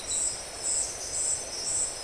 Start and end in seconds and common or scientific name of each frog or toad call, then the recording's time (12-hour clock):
none
10:30pm